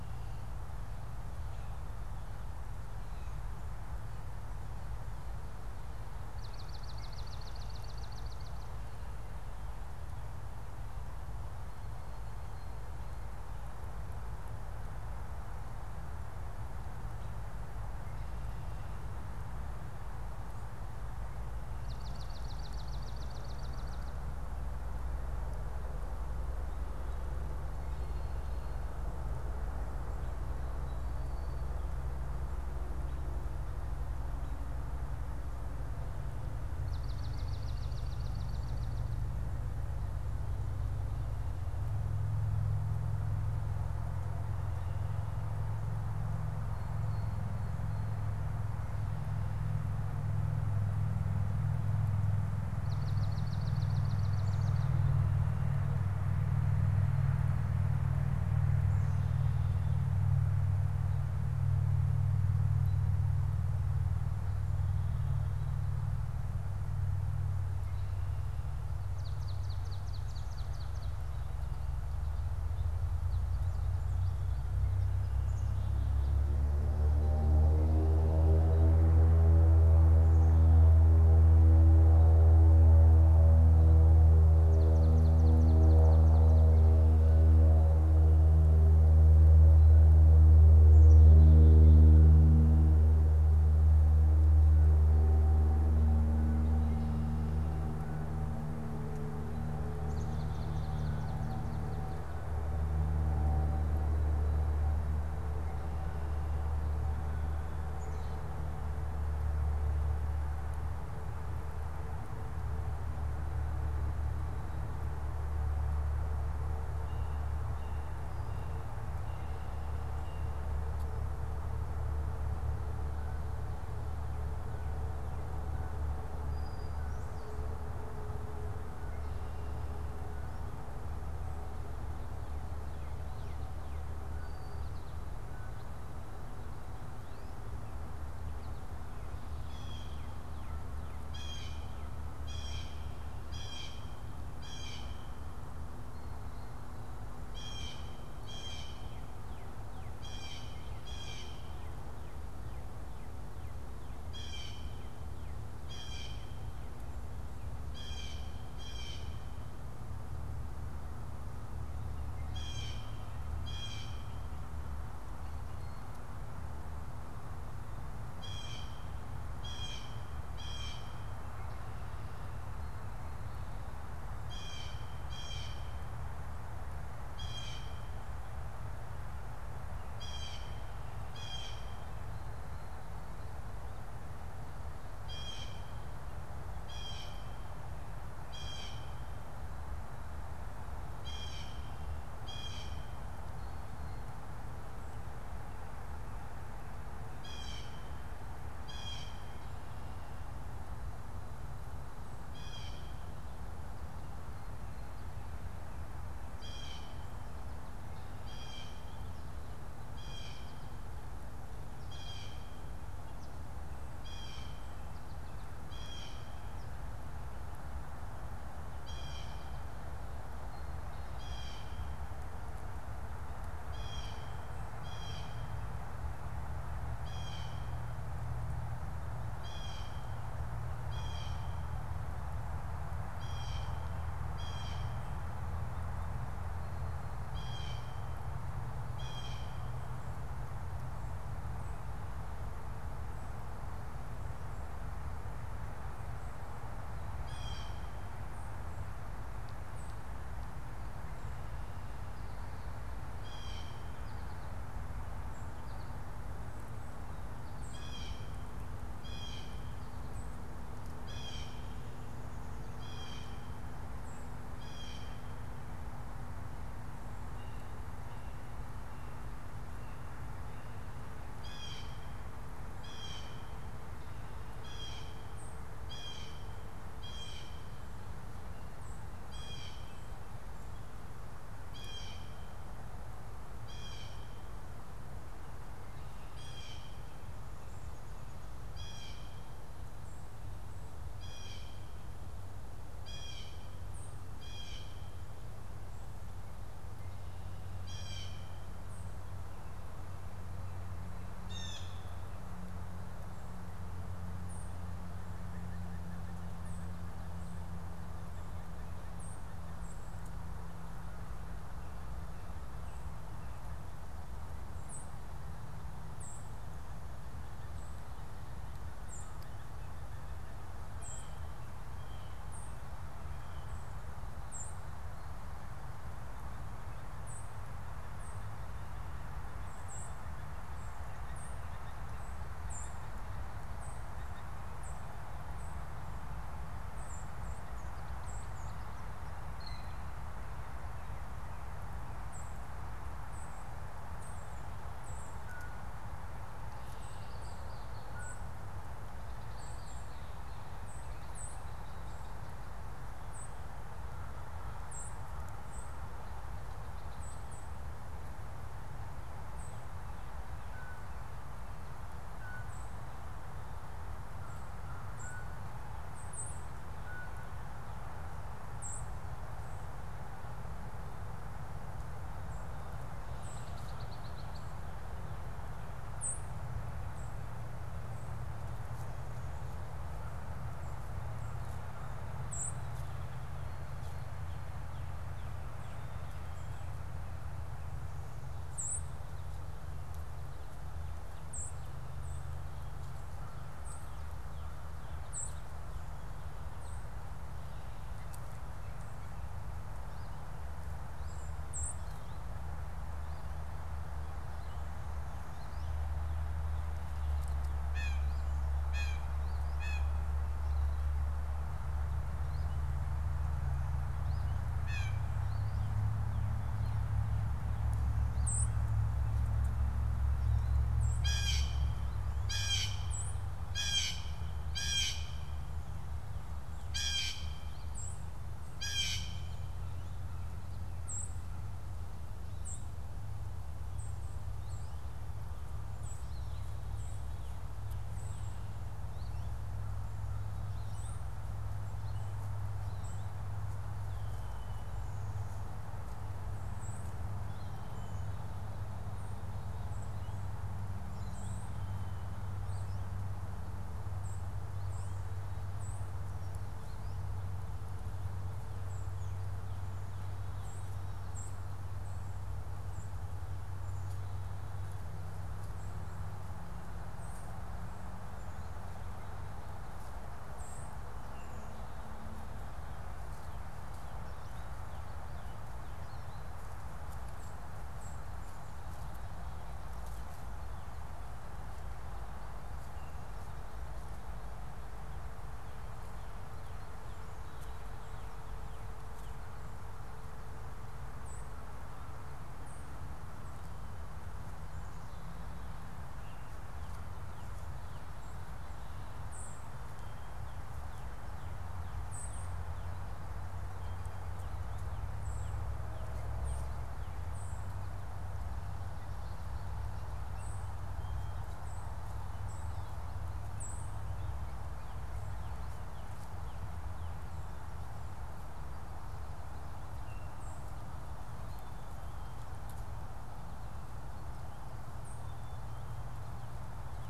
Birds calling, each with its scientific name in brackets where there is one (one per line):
Brown-headed Cowbird (Molothrus ater)
Red-winged Blackbird (Agelaius phoeniceus)
Blue Jay (Cyanocitta cristata)
unidentified bird
Black-capped Chickadee (Poecile atricapillus)
White-throated Sparrow (Zonotrichia albicollis)
Swamp Sparrow (Melospiza georgiana)
American Goldfinch (Spinus tristis)